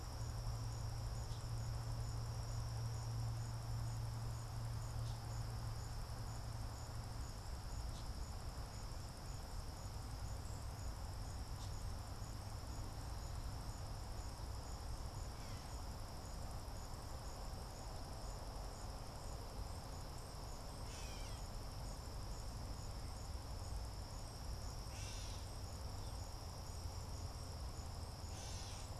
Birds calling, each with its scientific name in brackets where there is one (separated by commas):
Gray Catbird (Dumetella carolinensis)